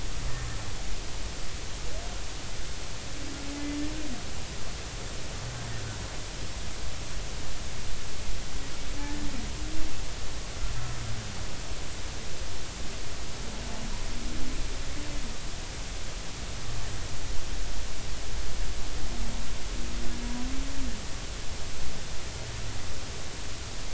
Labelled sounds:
9.0	9.3	humpback whale, 1.7 to 1.9 kHz

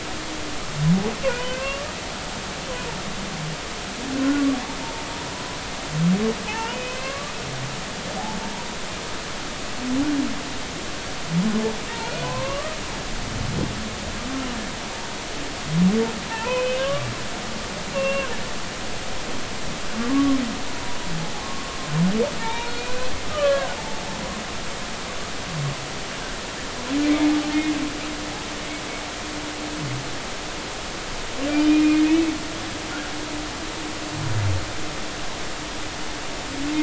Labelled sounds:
1.4	1.9	humpback whale, 1.0 to 3.1 kHz
4.8	5.0	humpback whale, 0.86 to 0.96 kHz
6.5	7.3	humpback whale, 0.80 to 3.1 kHz
8.4	8.7	humpback whale, 0.86 to 1.0 kHz
12.0	12.8	humpback whale, 0.93 to 4.4 kHz
16.3	17.1	humpback whale, 0.83 to 3.1 kHz
17.9	18.3	humpback whale, 1.0 to 2.8 kHz
20.7	21.7	humpback whale, 0.93 to 1.2 kHz
22.4	23.8	humpback whale, 0.83 to 4.1 kHz
27.4	27.7	humpback whale, 2.9 to 3.1 kHz

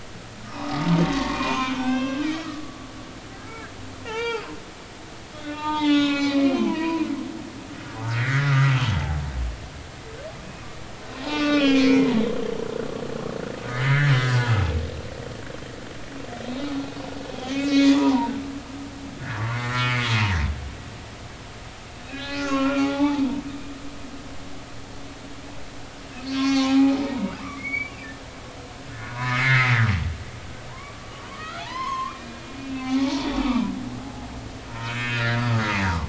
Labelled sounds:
0.4	2.6	humpback whale, 0.80 to 5.9 kHz
4.0	4.5	humpback whale, 0.80 to 6.1 kHz
5.4	7.1	humpback whale, 0.80 to 5.2 kHz
8.2	8.7	humpback whale, 1.2 to 2.4 kHz
11.2	12.5	humpback whale, 0.90 to 6.0 kHz
13.6	14.5	humpback whale, 1.3 to 2.3 kHz
16.5	16.7	humpback whale, 3.6 to 4.0 kHz
17.3	18.3	humpback whale, 0.83 to 3.5 kHz
19.4	20.1	humpback whale, 0.96 to 5.6 kHz
22.1	23.2	humpback whale, 0.80 to 4.0 kHz
26.3	27.9	humpback whale, 0.80 to 5.6 kHz
29.1	29.9	humpback whale, 0.93 to 2.7 kHz
30.7	34.3	humpback whale, 0.80 to 6.3 kHz
34.7	36.0	humpback whale, 0.99 to 2.6 kHz

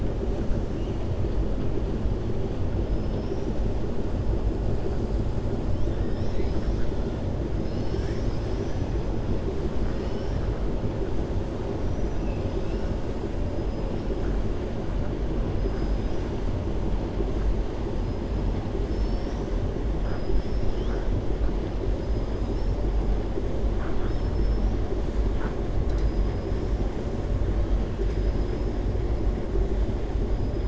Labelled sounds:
18.8	19.5	killer whale, 4.4 to 6.1 kHz
20.0	21.0	killer whale, 1.1 to 6.3 kHz
23.7	24.8	killer whale, 0.71 to 5.8 kHz
28.0	28.7	killer whale, 4.4 to 6.9 kHz

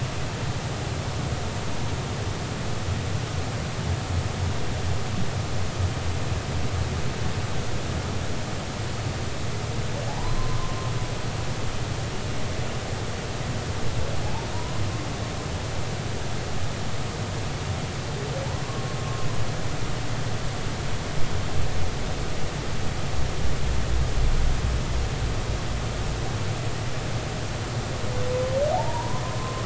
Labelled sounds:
10.1	10.9	humpback whale, 0.80 to 1.1 kHz
14.2	14.8	humpback whale, 0.80 to 1.1 kHz
28.7	29.6	humpback whale, 0.80 to 1.1 kHz

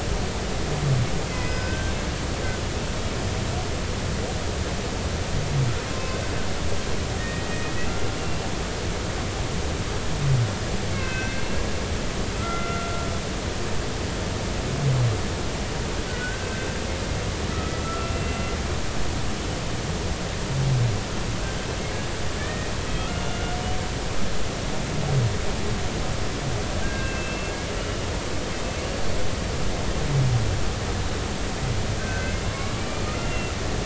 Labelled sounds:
1.3	1.9	humpback whale, 1.5 to 5.2 kHz
5.9	6.2	humpback whale, 0.99 to 1.1 kHz
7.2	7.7	humpback whale, 1.8 to 2.0 kHz
8.2	8.4	humpback whale, 2.7 to 2.8 kHz
10.9	11.6	humpback whale, 1.5 to 2.8 kHz
12.3	13.1	humpback whale, 1.2 to 2.1 kHz
16.1	16.5	humpback whale, 1.4 to 1.6 kHz
17.5	18.4	humpback whale, 1.2 to 2.8 kHz
22.4	23.5	humpback whale, 1.2 to 2.9 kHz
26.8	28.1	humpback whale, 1.5 to 3.0 kHz
28.8	29.2	humpback whale, 4.4 to 4.5 kHz
32.0	33.5	humpback whale, 0.99 to 2.8 kHz

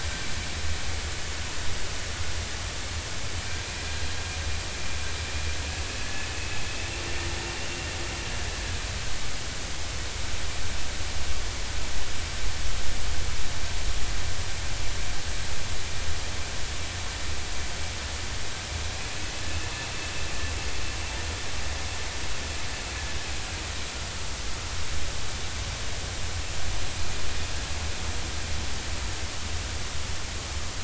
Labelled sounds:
6.0	6.3	vessel noise, 1.7 to 1.8 kHz

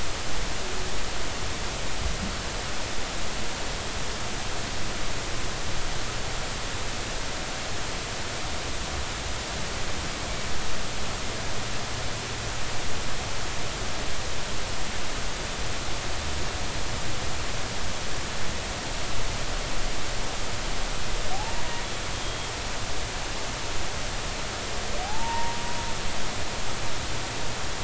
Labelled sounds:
21.3	21.6	humpback whale, 0.80 to 0.99 kHz
22.1	22.5	humpback whale, 3.2 to 3.3 kHz
25.0	25.6	humpback whale, 0.80 to 0.99 kHz

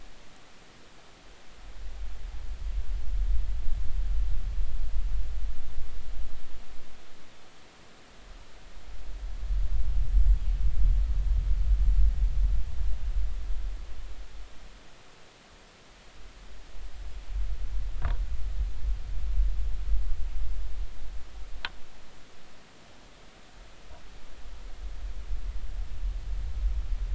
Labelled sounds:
9.8	10.4	killer whale, northern resident, 7.4 to 8.0 kHz

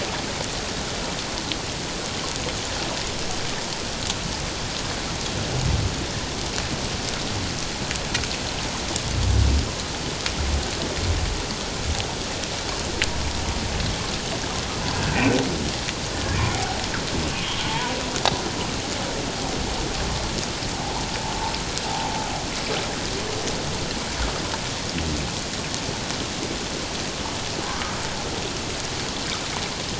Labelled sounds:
15.1	15.4	humpback whale, 2.3 to 2.7 kHz
17.6	17.9	humpback whale, 0.84 to 1.0 kHz
27.6	27.9	humpback whale, 0.97 to 1.3 kHz

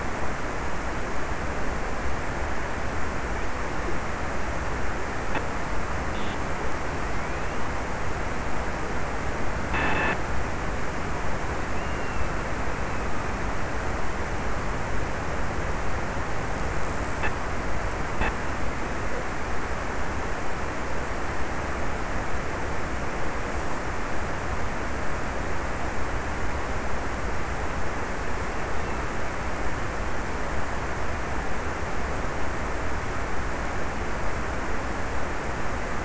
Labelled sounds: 11.2	14.2	killer whale, offshore, 1.9 to 3.1 kHz

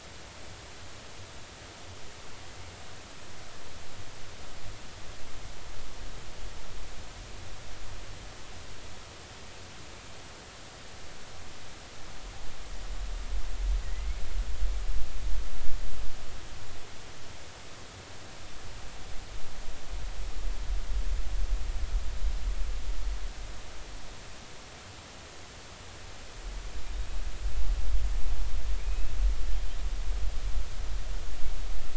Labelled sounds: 13.8	14.2	killer whale, northern resident, 1.8 to 2.3 kHz
28.8	29.1	killer whale, northern resident, 2.4 to 2.7 kHz

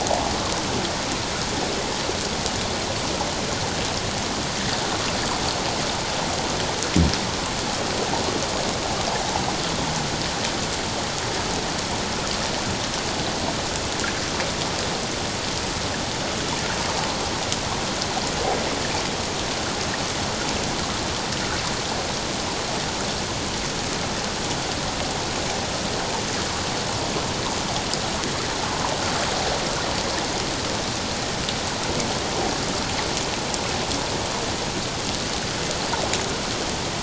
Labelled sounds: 0.0	0.3	water noise, 0.78 to 1.0 kHz

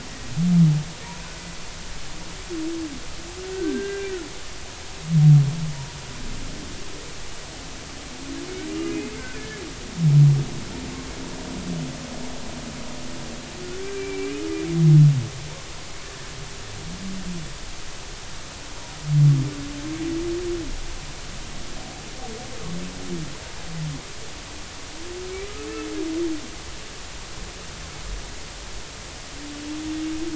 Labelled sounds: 3.5	4.1	humpback whale, 1.5 to 1.6 kHz
8.8	9.6	humpback whale, 1.7 to 2.6 kHz
13.8	14.3	humpback whale, 1.5 to 2.4 kHz

